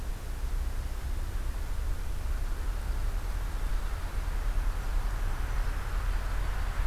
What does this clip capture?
Black-throated Green Warbler